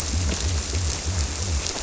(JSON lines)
{"label": "biophony", "recorder": "SoundTrap 300"}